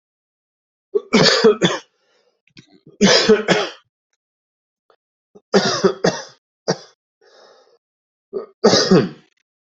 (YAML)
expert_labels:
- quality: good
  cough_type: dry
  dyspnea: false
  wheezing: false
  stridor: false
  choking: false
  congestion: false
  nothing: true
  diagnosis: upper respiratory tract infection
  severity: mild
age: 50
gender: male
respiratory_condition: true
fever_muscle_pain: false
status: COVID-19